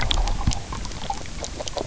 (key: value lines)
label: biophony, grazing
recorder: SoundTrap 300